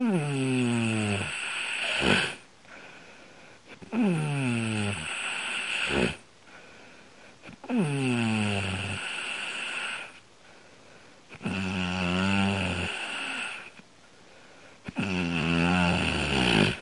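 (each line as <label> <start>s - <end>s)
Someone snores loudly. 0.0s - 2.4s
Someone snores loudly. 3.9s - 6.3s
Someone snores loudly. 7.6s - 10.2s
Someone snores loudly. 11.3s - 13.8s
Someone snores loudly. 14.8s - 16.8s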